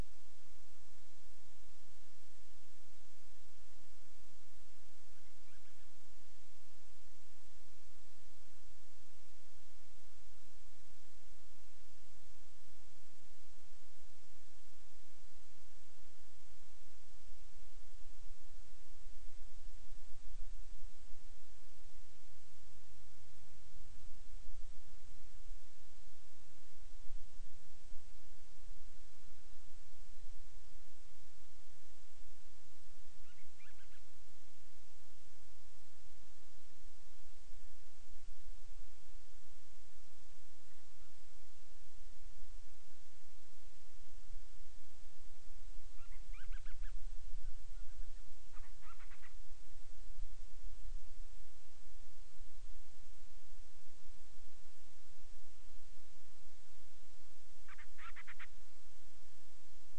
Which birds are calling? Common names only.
Band-rumped Storm-Petrel